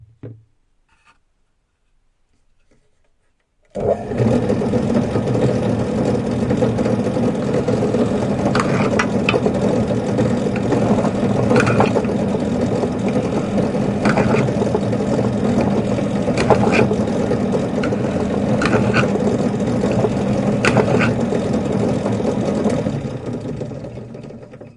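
A short thumping sound. 0:00.2 - 0:00.4
A pillar drill machine is being turned off. 0:00.8 - 0:01.3
The sound of a pillar drill machine running continuously. 0:03.7 - 0:24.8
A hole is being drilled into plastic using a pillar drill. 0:08.6 - 0:09.4
A hole is being drilled into plastic using a pillar drill. 0:11.5 - 0:12.0
A hole is being drilled into plastic using a pillar drill. 0:14.0 - 0:14.6
A hole is being drilled into plastic using a pillar drill. 0:16.5 - 0:17.0
A hole is being drilled into plastic using a pillar drill. 0:18.6 - 0:19.1
A hole is being drilled into plastic using a pillar drill. 0:20.6 - 0:21.1

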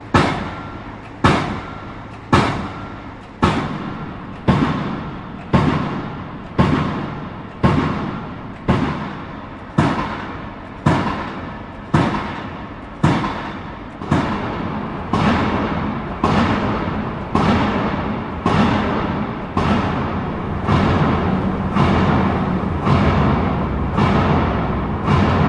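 A metallic thumping sound repeats rhythmically, slowly fading but gaining reverb. 0:00.0 - 0:25.5

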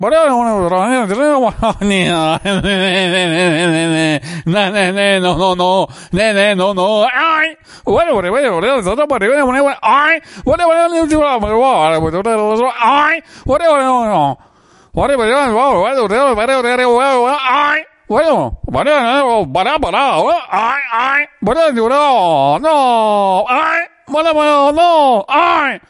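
Someone is speaking profusely in a funny manner. 0:00.0 - 0:25.9

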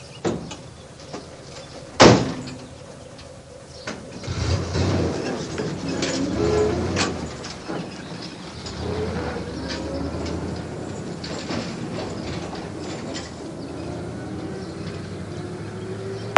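Vintage metal doors banging noisily. 0:00.2 - 0:02.6
Vintage metal doors opening and squeaking. 0:03.8 - 0:08.5
Chains rattling and hitting metal doors or gates. 0:08.9 - 0:16.4

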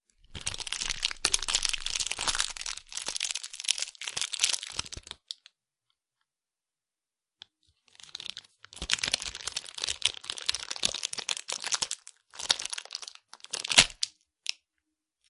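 A person removes a plastic wrapper from a packed product. 0:00.3 - 0:05.4
A person removes a plastic wrapper from a packed product. 0:08.0 - 0:14.7

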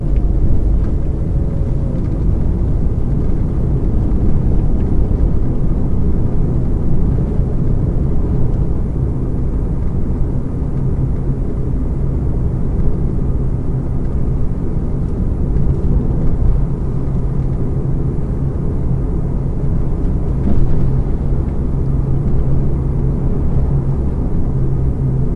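A car humming while driving. 0:00.0 - 0:25.4

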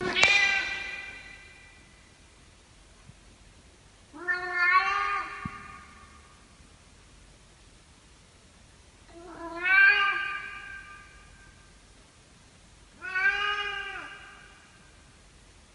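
A single meow echoes in the room. 0:00.2 - 0:01.1
A cat meows softly, echoing through the quiet room. 0:04.6 - 0:05.5
A cat meows softly, echoing through the quiet room. 0:09.6 - 0:10.7
A cat meows softly, echoing through the quiet room. 0:13.0 - 0:14.3

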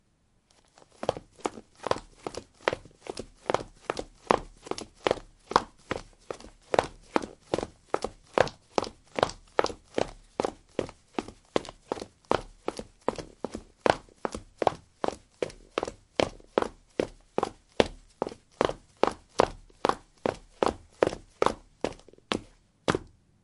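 Rhythmic footsteps repeated outdoors. 0:00.4 - 0:23.2

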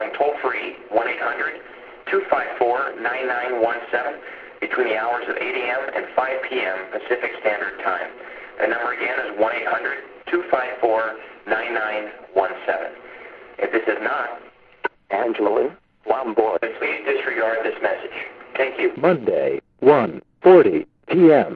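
Someone speaking on the telephone. 0:00.0 - 0:15.0
A robotic voice speaks from an answering machine. 0:15.0 - 0:16.4
Someone speaking on the telephone. 0:16.5 - 0:18.8
A robotic voice speaks from an answering machine. 0:18.8 - 0:21.6

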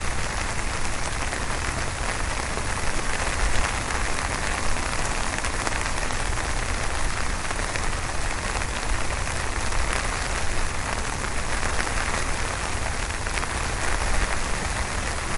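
Noise. 0:00.0 - 0:15.4
Rain falling. 0:00.0 - 0:15.4

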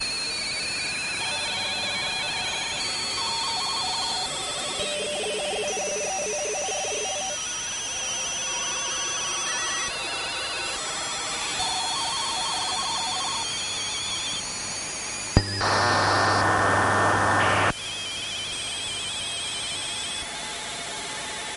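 A stable sound wave. 0:00.0 - 0:21.6
An encrypted message is transmitted through audio waves. 0:00.0 - 0:21.6
An old machine is producing a steady counting sound. 0:00.0 - 0:21.6
A loud radio tuning sound. 0:15.6 - 0:17.7
Sound interference. 0:15.6 - 0:17.7

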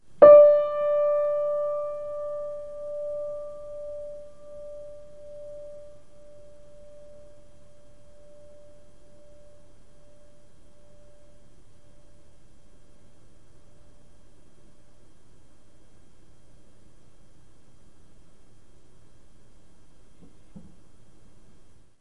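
A loud piano note is played and quickly fades with a slight pulsation. 0:00.2 - 0:06.9

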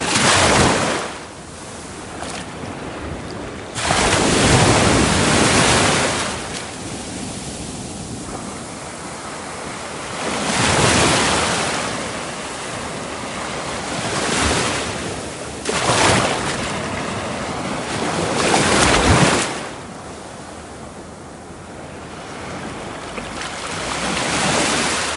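A colossal ocean wave crashes repeatedly with a roaring, thunderous sound. 0:00.0 - 0:25.2

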